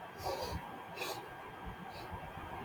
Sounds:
Sniff